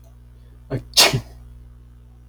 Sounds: Sneeze